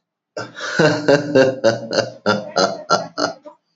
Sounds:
Laughter